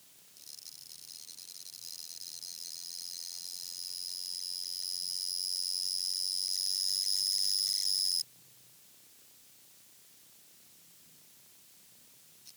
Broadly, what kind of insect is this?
orthopteran